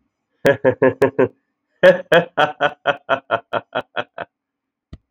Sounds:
Laughter